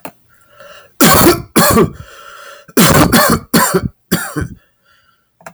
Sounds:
Cough